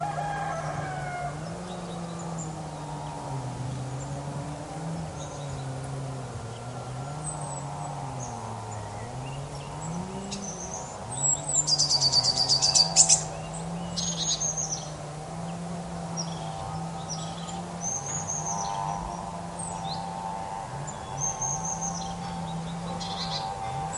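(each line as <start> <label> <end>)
0.1 A weak engine of a lawn mower running outdoors. 24.0
0.1 A rooster crows loudly outdoors. 1.6
1.6 A bird chirps repeatedly in the distance. 11.5
11.0 A bird chirps loudly outdoors. 13.3
11.8 An engine hum grows louder, then weakens and stabilizes. 24.0
13.9 A bird is chirping in the distance. 14.7
17.1 Multiple birds chirp with varying rhythms, unevenly and in different tones. 24.0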